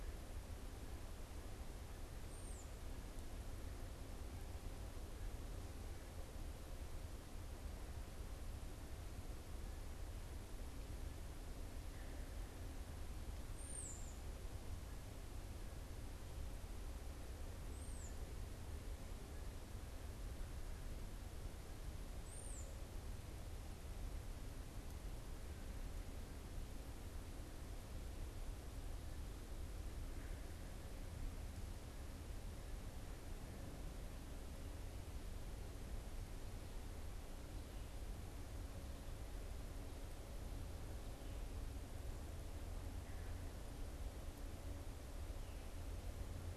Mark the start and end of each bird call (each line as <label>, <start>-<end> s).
unidentified bird, 2.2-2.8 s
unidentified bird, 13.4-22.9 s